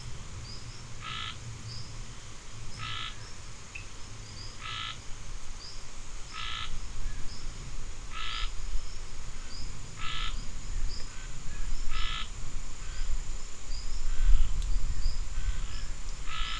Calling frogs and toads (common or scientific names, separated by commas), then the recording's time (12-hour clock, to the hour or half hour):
Scinax perereca, Cochran's lime tree frog
~6pm